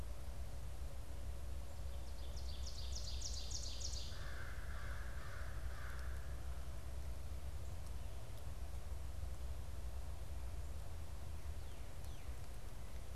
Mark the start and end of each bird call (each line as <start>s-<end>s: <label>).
2.1s-4.6s: Ovenbird (Seiurus aurocapilla)
3.9s-6.6s: American Crow (Corvus brachyrhynchos)